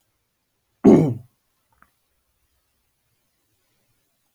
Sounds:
Throat clearing